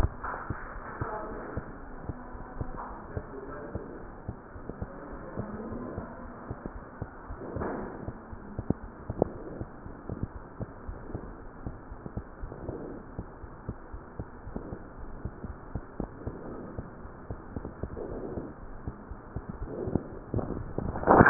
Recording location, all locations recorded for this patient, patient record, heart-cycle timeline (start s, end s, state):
aortic valve (AV)
aortic valve (AV)+pulmonary valve (PV)+tricuspid valve (TV)+mitral valve (MV)
#Age: Child
#Sex: Male
#Height: 76.0 cm
#Weight: 9.4 kg
#Pregnancy status: False
#Murmur: Present
#Murmur locations: mitral valve (MV)+tricuspid valve (TV)
#Most audible location: tricuspid valve (TV)
#Systolic murmur timing: Early-systolic
#Systolic murmur shape: Decrescendo
#Systolic murmur grading: I/VI
#Systolic murmur pitch: Low
#Systolic murmur quality: Blowing
#Diastolic murmur timing: nan
#Diastolic murmur shape: nan
#Diastolic murmur grading: nan
#Diastolic murmur pitch: nan
#Diastolic murmur quality: nan
#Outcome: Abnormal
#Campaign: 2015 screening campaign
0.00	0.54	unannotated
0.54	0.74	diastole
0.74	0.84	S1
0.84	1.00	systole
1.00	1.10	S2
1.10	1.29	diastole
1.29	1.40	S1
1.40	1.52	systole
1.52	1.62	S2
1.62	1.77	diastole
1.77	1.90	S1
1.90	2.06	systole
2.06	2.13	S2
2.13	2.32	diastole
2.32	2.46	S1
2.46	2.59	systole
2.59	2.66	S2
2.66	2.86	diastole
2.86	2.96	S1
2.96	3.12	systole
3.12	3.24	S2
3.24	3.48	diastole
3.48	3.61	S1
3.61	3.74	systole
3.74	3.81	S2
3.81	4.02	diastole
4.02	4.12	S1
4.12	4.26	systole
4.26	4.33	S2
4.33	4.52	diastole
4.52	4.63	S1
4.63	4.80	systole
4.80	4.90	S2
4.90	5.10	diastole
5.10	5.19	S1
5.19	5.36	systole
5.36	5.50	S2
5.50	5.68	diastole
5.68	5.81	S1
5.81	5.95	systole
5.95	6.02	S2
6.02	6.22	diastole
6.22	6.32	S1
6.32	6.48	systole
6.48	6.55	S2
6.55	6.71	diastole
6.71	6.82	S1
6.82	7.00	systole
7.00	7.10	S2
7.10	7.27	diastole
7.27	7.36	S1
7.36	7.54	systole
7.54	7.64	S2
7.64	7.82	diastole
7.82	7.92	S1
7.92	8.06	systole
8.06	8.13	S2
8.13	8.30	diastole
8.30	8.42	S1
8.42	8.56	systole
8.56	8.68	S2
8.68	8.82	diastole
8.82	21.30	unannotated